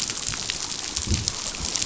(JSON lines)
{"label": "biophony", "recorder": "SoundTrap 500"}